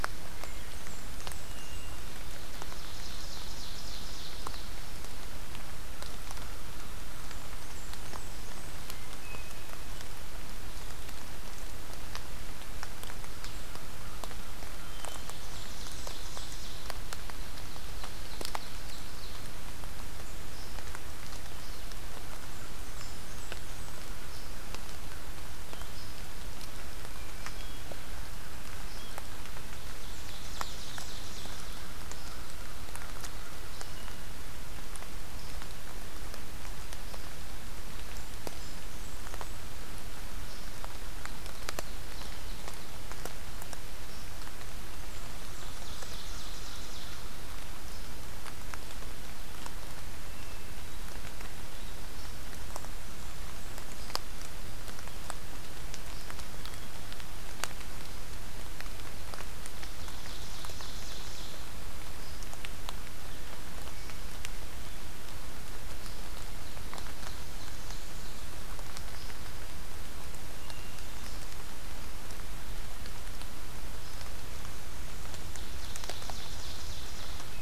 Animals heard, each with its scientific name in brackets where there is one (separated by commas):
Wood Thrush (Hylocichla mustelina), American Crow (Corvus brachyrhynchos), Blackburnian Warbler (Setophaga fusca), Hermit Thrush (Catharus guttatus), Ovenbird (Seiurus aurocapilla)